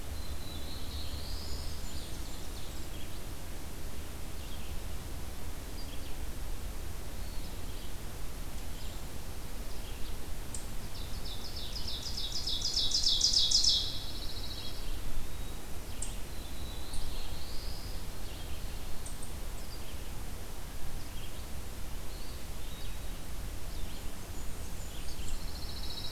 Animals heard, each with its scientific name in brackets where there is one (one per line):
Blackburnian Warbler (Setophaga fusca)
Black-throated Blue Warbler (Setophaga caerulescens)
Eastern Chipmunk (Tamias striatus)
Red-eyed Vireo (Vireo olivaceus)
Pine Warbler (Setophaga pinus)
Eastern Wood-Pewee (Contopus virens)
Ovenbird (Seiurus aurocapilla)